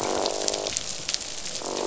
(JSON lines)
{"label": "biophony, croak", "recorder": "SoundTrap 500"}